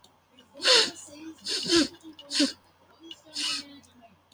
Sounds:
Sniff